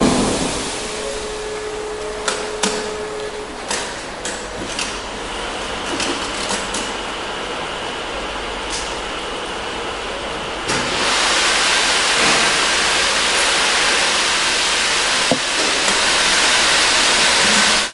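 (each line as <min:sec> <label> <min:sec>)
0:00.0 Constant ambiguous noises. 0:10.6
0:10.7 A knitting machine operates steadily. 0:17.9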